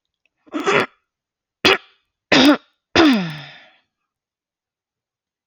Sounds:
Throat clearing